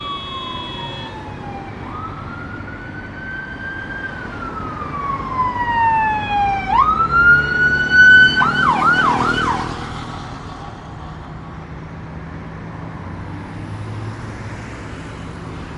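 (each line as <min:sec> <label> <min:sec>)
0:00.0 A car horn is ringing. 0:01.3
0:00.0 The siren of an emergency vehicle wails with a pulsating sound. 0:09.8
0:00.0 Cars driving in a city. 0:15.8
0:07.2 The engine of a vehicle driving by closely. 0:09.9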